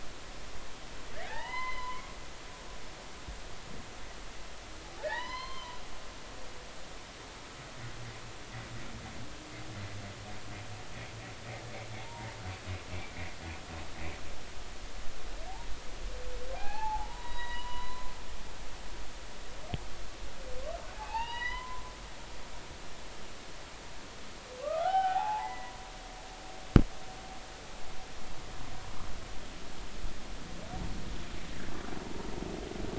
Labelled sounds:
1.2	2.0	humpback whale, 0.80 to 3.1 kHz
2.7	2.9	humpback whale, 4.0 to 4.1 kHz
5.0	5.8	humpback whale, 0.80 to 4.3 kHz
12.0	12.3	humpback whale, 0.80 to 1.0 kHz
16.5	18.1	humpback whale, 0.80 to 4.0 kHz
20.9	21.8	humpback whale, 0.80 to 5.1 kHz
24.6	25.7	humpback whale, 0.80 to 3.1 kHz

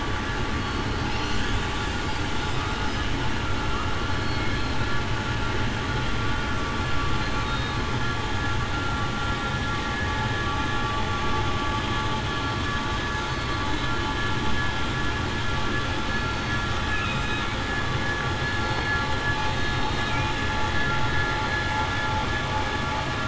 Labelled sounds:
7.4	7.7	killer whale, southern resident, 3.6 to 3.8 kHz
16.1	16.6	killer whale, southern resident, 4.4 to 4.5 kHz
17.0	17.4	killer whale, southern resident, 3.7 to 3.8 kHz
18.6	19.2	killer whale, southern resident, 4.2 to 4.5 kHz
19.4	20.0	killer whale, southern resident, 3.68 to 3.73 kHz

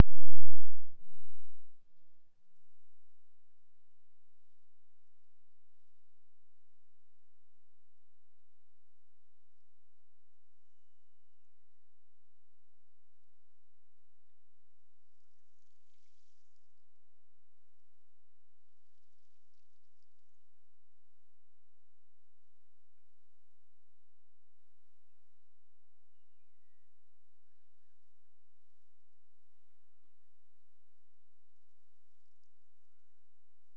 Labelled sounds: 10.5	12.0	killer whale, Bigg's (transient), Gulf of Alaska transient, 1.4 to 3.2 kHz
26.0	27.0	killer whale, Bigg's (transient), Gulf of Alaska transient, 1.7 to 3.0 kHz

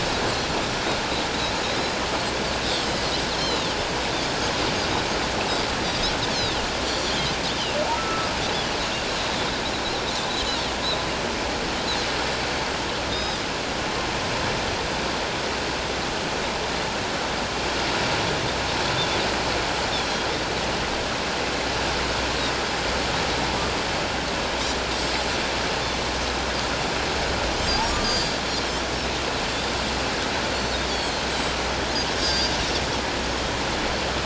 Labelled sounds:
2.7	3.8	Pacific white-sided dolphin, 2.7 to 5.5 kHz
5.9	6.6	Pacific white-sided dolphin, 3.4 to 4.4 kHz
7.9	8.3	humpback whale, 1.2 to 1.4 kHz
13.1	13.4	Pacific white-sided dolphin, 3.5 to 5.2 kHz
19.9	20.3	Pacific white-sided dolphin, 3.2 to 3.7 kHz
28.0	28.4	Pacific white-sided dolphin, 4.4 to 5.0 kHz
30.5	31.3	Pacific white-sided dolphin, 3.1 to 7.5 kHz
32.2	32.5	Pacific white-sided dolphin, 4.6 to 5.0 kHz

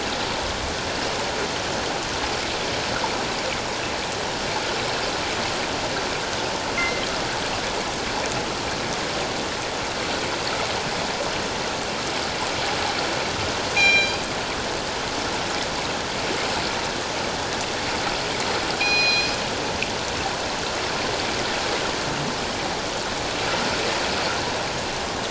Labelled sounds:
6.8	7.0	killer whale, northern resident, G clan, 2.0 to 2.2 kHz
13.7	14.2	killer whale, northern resident, G clan, 1.5 to 7.3 kHz
18.8	19.4	killer whale, northern resident, G clan, 2.3 to 5.9 kHz

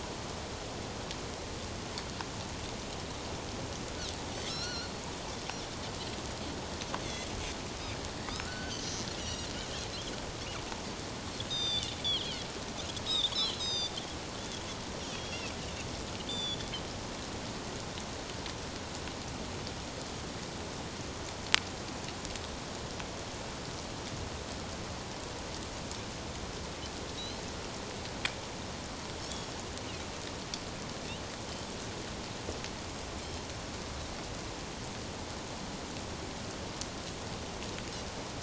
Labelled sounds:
4.5	5.0	Pacific white-sided dolphin, 1.3 to 5.9 kHz
7.0	7.3	Pacific white-sided dolphin, 3.2 to 3.6 kHz
8.3	9.5	Pacific white-sided dolphin, 1.2 to 6.0 kHz
11.5	14.6	Pacific white-sided dolphin, 2.7 to 7.7 kHz
15.1	15.5	Pacific white-sided dolphin, 3.2 to 5.9 kHz
16.3	16.6	Pacific white-sided dolphin, 3.3 to 7.2 kHz
27.2	27.4	Pacific white-sided dolphin, 3.7 to 4.3 kHz
29.2	29.5	Pacific white-sided dolphin, 5.3 to 5.7 kHz
33.2	33.4	Pacific white-sided dolphin, 5.2 to 5.4 kHz

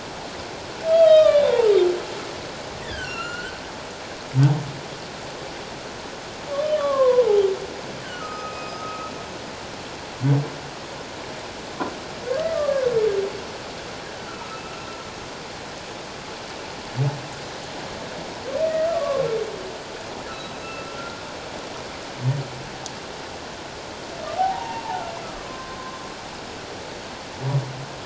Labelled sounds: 0.9	1.7	humpback whale, 0.88 to 5.1 kHz
2.8	3.6	humpback whale, 1.3 to 4.5 kHz
6.8	7.3	humpback whale, 0.94 to 1.2 kHz
8.0	9.1	humpback whale, 1.2 to 5.1 kHz
12.5	12.8	humpback whale, 1.0 to 1.2 kHz
14.3	14.6	humpback whale, 1.2 to 1.5 kHz
18.7	19.3	humpback whale, 0.97 to 1.4 kHz
20.3	21.3	humpback whale, 1.2 to 1.5 kHz
24.4	25.8	humpback whale, 0.78 to 2.9 kHz

